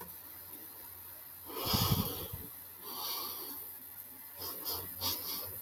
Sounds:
Sigh